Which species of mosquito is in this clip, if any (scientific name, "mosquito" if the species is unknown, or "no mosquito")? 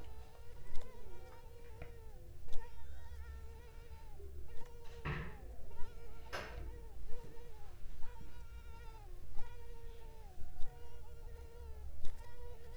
Culex pipiens complex